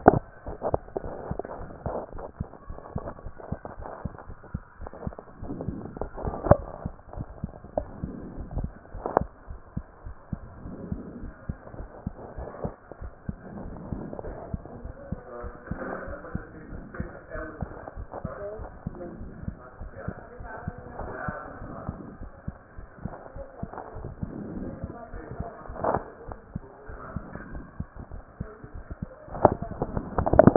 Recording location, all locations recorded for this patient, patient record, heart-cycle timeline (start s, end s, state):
aortic valve (AV)
aortic valve (AV)+pulmonary valve (PV)+tricuspid valve (TV)+mitral valve (MV)
#Age: Child
#Sex: Male
#Height: 138.0 cm
#Weight: 33.0 kg
#Pregnancy status: False
#Murmur: Absent
#Murmur locations: nan
#Most audible location: nan
#Systolic murmur timing: nan
#Systolic murmur shape: nan
#Systolic murmur grading: nan
#Systolic murmur pitch: nan
#Systolic murmur quality: nan
#Diastolic murmur timing: nan
#Diastolic murmur shape: nan
#Diastolic murmur grading: nan
#Diastolic murmur pitch: nan
#Diastolic murmur quality: nan
#Outcome: Normal
#Campaign: 2014 screening campaign
0.00	10.04	unannotated
10.04	10.14	S1
10.14	10.32	systole
10.32	10.40	S2
10.40	10.64	diastole
10.64	10.76	S1
10.76	10.90	systole
10.90	11.00	S2
11.00	11.22	diastole
11.22	11.32	S1
11.32	11.48	systole
11.48	11.58	S2
11.58	11.78	diastole
11.78	11.88	S1
11.88	12.04	systole
12.04	12.14	S2
12.14	12.38	diastole
12.38	12.48	S1
12.48	12.62	systole
12.62	12.72	S2
12.72	13.02	diastole
13.02	13.12	S1
13.12	13.28	systole
13.28	13.36	S2
13.36	13.62	diastole
13.62	13.76	S1
13.76	13.90	systole
13.90	14.02	S2
14.02	14.26	diastole
14.26	14.38	S1
14.38	14.52	systole
14.52	14.62	S2
14.62	14.82	diastole
14.82	14.94	S1
14.94	15.10	systole
15.10	15.20	S2
15.20	15.42	diastole
15.42	15.54	S1
15.54	15.70	systole
15.70	15.80	S2
15.80	16.06	diastole
16.06	16.18	S1
16.18	16.34	systole
16.34	16.42	S2
16.42	16.72	diastole
16.72	16.84	S1
16.84	16.98	systole
16.98	17.10	S2
17.10	17.36	diastole
17.36	30.56	unannotated